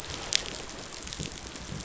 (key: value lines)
label: biophony
recorder: SoundTrap 500